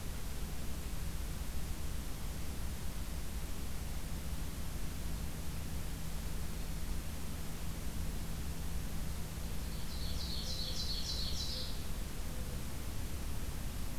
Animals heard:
Mourning Dove (Zenaida macroura), Black-throated Green Warbler (Setophaga virens), Ovenbird (Seiurus aurocapilla)

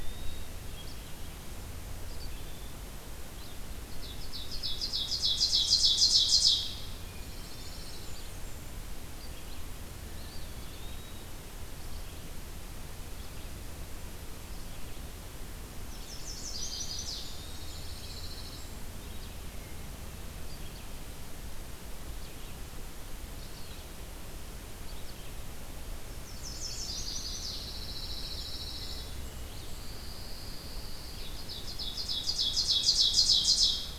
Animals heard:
Red-eyed Vireo (Vireo olivaceus), Chestnut-sided Warbler (Setophaga pensylvanica), Ovenbird (Seiurus aurocapilla), Pine Warbler (Setophaga pinus), Blackburnian Warbler (Setophaga fusca), Eastern Wood-Pewee (Contopus virens), Dark-eyed Junco (Junco hyemalis)

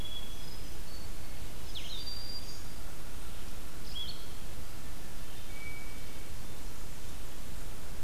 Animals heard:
Blue-headed Vireo (Vireo solitarius), Hermit Thrush (Catharus guttatus), Black-throated Green Warbler (Setophaga virens)

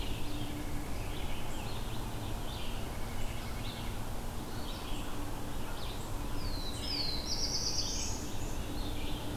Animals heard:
White-breasted Nuthatch (Sitta carolinensis), Red-eyed Vireo (Vireo olivaceus), Scarlet Tanager (Piranga olivacea), Black-throated Blue Warbler (Setophaga caerulescens)

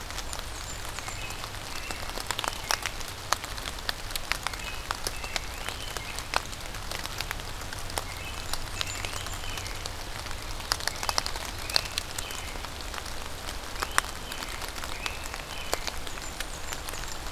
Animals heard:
Great Crested Flycatcher (Myiarchus crinitus), American Robin (Turdus migratorius), Blackburnian Warbler (Setophaga fusca)

